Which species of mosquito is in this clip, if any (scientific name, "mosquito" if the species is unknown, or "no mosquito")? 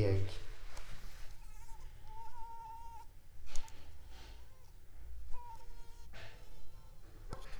Anopheles arabiensis